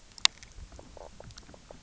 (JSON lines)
{"label": "biophony, knock croak", "recorder": "SoundTrap 300"}